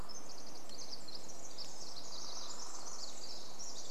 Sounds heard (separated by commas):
woodpecker drumming, Pacific Wren song